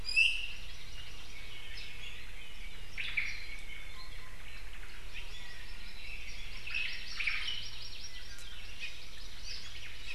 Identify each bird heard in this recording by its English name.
Iiwi, Hawaii Amakihi, Omao